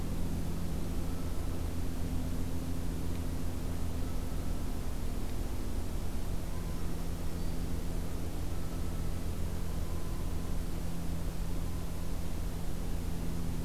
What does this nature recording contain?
Black-throated Green Warbler